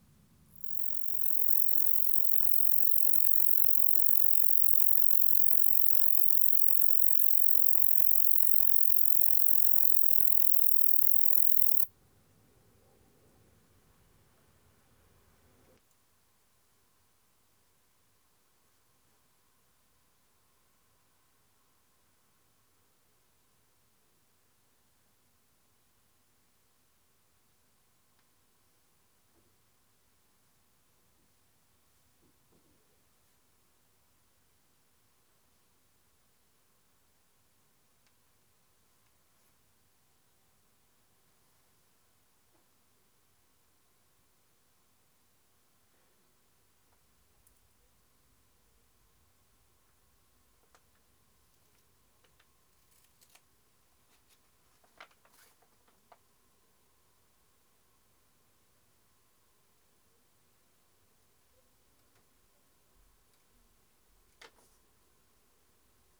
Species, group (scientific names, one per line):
Roeseliana roeselii
Orthoptera